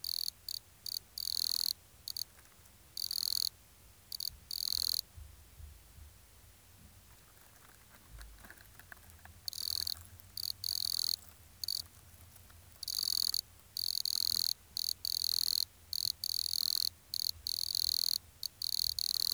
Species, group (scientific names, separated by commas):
Nemobius sylvestris, Orthoptera